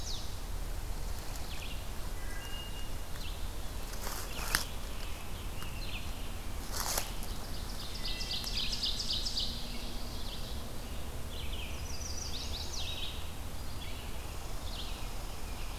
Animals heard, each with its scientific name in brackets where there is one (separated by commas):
Red-eyed Vireo (Vireo olivaceus), Chestnut-sided Warbler (Setophaga pensylvanica), Wood Thrush (Hylocichla mustelina), Ovenbird (Seiurus aurocapilla)